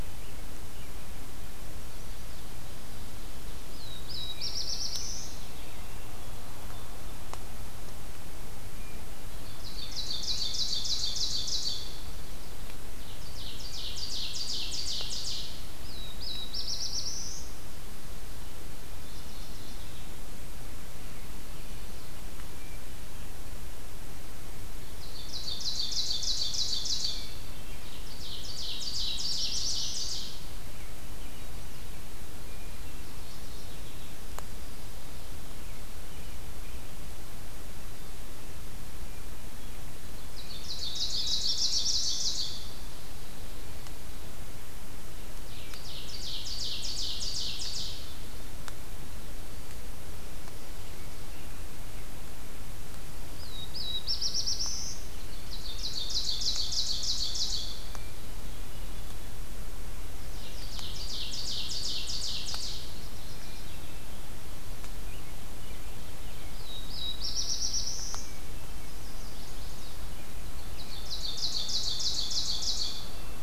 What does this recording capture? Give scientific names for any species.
Setophaga caerulescens, Catharus guttatus, Seiurus aurocapilla, Geothlypis philadelphia, Setophaga pensylvanica